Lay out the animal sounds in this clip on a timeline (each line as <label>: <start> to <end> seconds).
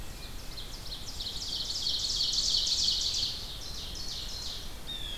Ovenbird (Seiurus aurocapilla): 0.0 to 4.7 seconds
Blue Jay (Cyanocitta cristata): 4.0 to 5.2 seconds